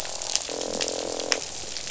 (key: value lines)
label: biophony, croak
recorder: SoundTrap 500